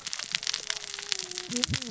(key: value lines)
label: biophony, cascading saw
recorder: SoundTrap 600 or HydroMoth